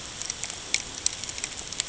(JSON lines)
{"label": "ambient", "recorder": "HydroMoth"}